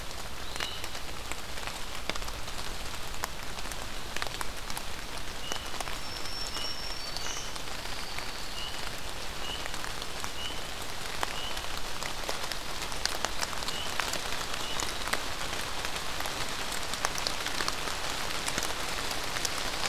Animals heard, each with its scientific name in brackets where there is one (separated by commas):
unidentified call, Black-throated Green Warbler (Setophaga virens), Pine Warbler (Setophaga pinus)